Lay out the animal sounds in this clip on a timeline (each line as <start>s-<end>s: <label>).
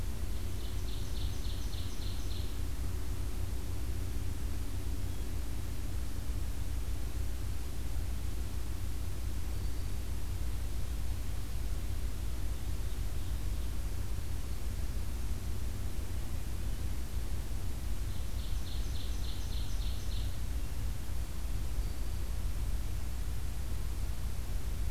0.1s-2.6s: Ovenbird (Seiurus aurocapilla)
9.4s-10.1s: Black-throated Green Warbler (Setophaga virens)
18.2s-20.4s: Ovenbird (Seiurus aurocapilla)